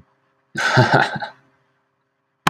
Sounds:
Laughter